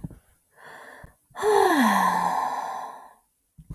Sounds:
Sigh